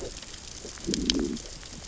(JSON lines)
{"label": "biophony, growl", "recorder": "SoundTrap 600 or HydroMoth"}